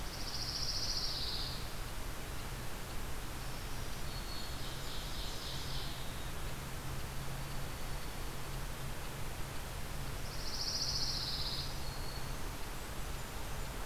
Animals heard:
Blackburnian Warbler (Setophaga fusca), Black-throated Green Warbler (Setophaga virens), Pine Warbler (Setophaga pinus), Ovenbird (Seiurus aurocapilla), Dark-eyed Junco (Junco hyemalis)

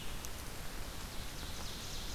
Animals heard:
Red-eyed Vireo (Vireo olivaceus), Ovenbird (Seiurus aurocapilla)

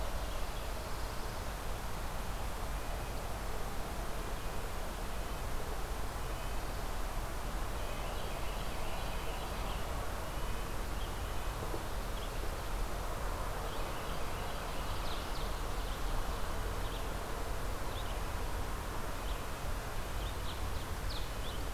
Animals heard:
Red-breasted Nuthatch (Sitta canadensis), Carolina Wren (Thryothorus ludovicianus), Black-throated Blue Warbler (Setophaga caerulescens), Red-eyed Vireo (Vireo olivaceus)

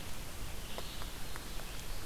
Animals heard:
Red-eyed Vireo (Vireo olivaceus)

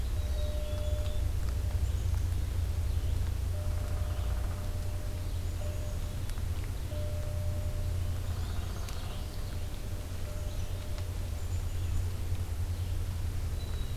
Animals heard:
Black-capped Chickadee (Poecile atricapillus), Downy Woodpecker (Dryobates pubescens), Red-eyed Vireo (Vireo olivaceus), Common Yellowthroat (Geothlypis trichas)

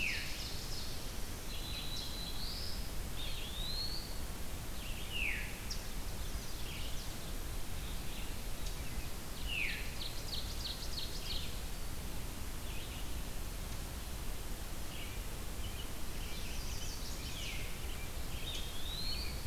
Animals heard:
American Robin (Turdus migratorius), Red-eyed Vireo (Vireo olivaceus), Chestnut-sided Warbler (Setophaga pensylvanica), Eastern Wood-Pewee (Contopus virens), Black-throated Blue Warbler (Setophaga caerulescens), Ovenbird (Seiurus aurocapilla), Veery (Catharus fuscescens)

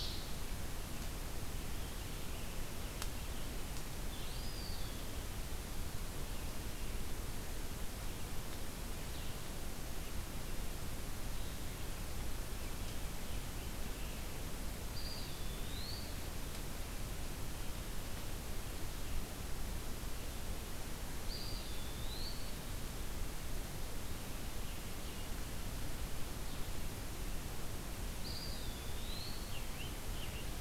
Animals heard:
Eastern Wood-Pewee (Contopus virens), Scarlet Tanager (Piranga olivacea), Red-eyed Vireo (Vireo olivaceus)

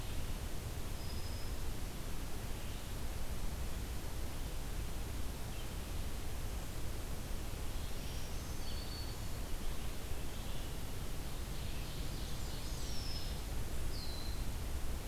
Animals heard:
Black-throated Green Warbler (Setophaga virens), Ovenbird (Seiurus aurocapilla), Red-winged Blackbird (Agelaius phoeniceus)

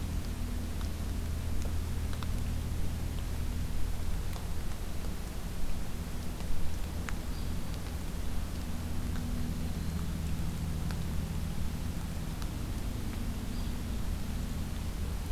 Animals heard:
Black-throated Green Warbler (Setophaga virens), Hairy Woodpecker (Dryobates villosus)

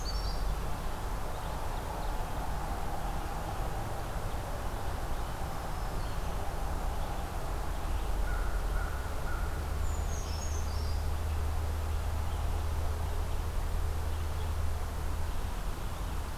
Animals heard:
American Crow (Corvus brachyrhynchos), Brown Creeper (Certhia americana), Red-eyed Vireo (Vireo olivaceus)

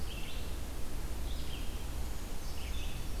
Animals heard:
Brown Creeper (Certhia americana), Red-eyed Vireo (Vireo olivaceus)

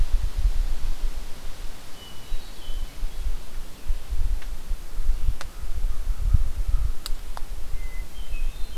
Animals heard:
Hermit Thrush (Catharus guttatus), American Crow (Corvus brachyrhynchos)

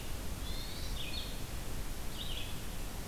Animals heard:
Hermit Thrush (Catharus guttatus), Red-eyed Vireo (Vireo olivaceus)

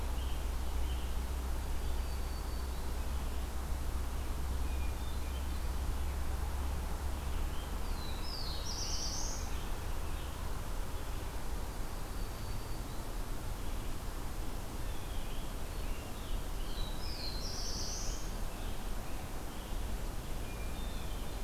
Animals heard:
Hermit Thrush (Catharus guttatus), Scarlet Tanager (Piranga olivacea), Blue Jay (Cyanocitta cristata), Black-throated Blue Warbler (Setophaga caerulescens), Black-throated Green Warbler (Setophaga virens)

